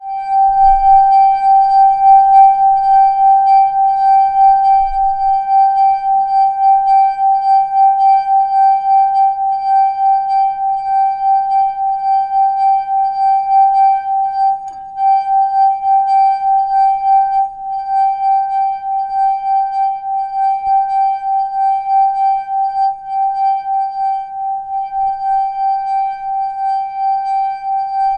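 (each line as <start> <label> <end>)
0.0 A wine glass produces a loud, clear ringing sound with a steady, consistent pattern. 28.2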